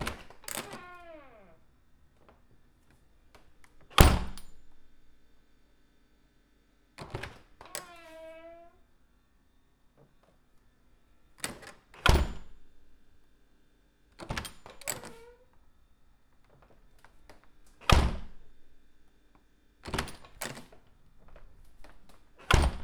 Is something being opened?
yes